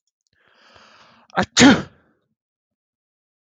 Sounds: Sneeze